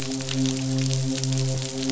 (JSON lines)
{"label": "biophony, midshipman", "recorder": "SoundTrap 500"}